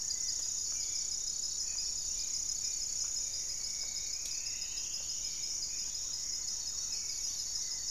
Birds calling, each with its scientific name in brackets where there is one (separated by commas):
Goeldi's Antbird (Akletos goeldii), Striped Woodcreeper (Xiphorhynchus obsoletus), Thrush-like Wren (Campylorhynchus turdinus), Hauxwell's Thrush (Turdus hauxwelli), Gray-fronted Dove (Leptotila rufaxilla)